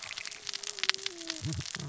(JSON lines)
{"label": "biophony, cascading saw", "recorder": "SoundTrap 600 or HydroMoth"}